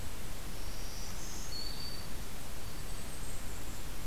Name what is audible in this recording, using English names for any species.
Golden-crowned Kinglet, Black-throated Green Warbler